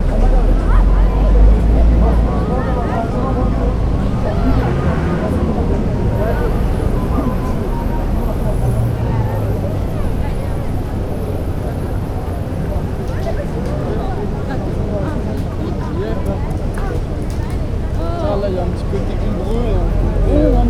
Is this indoors?
no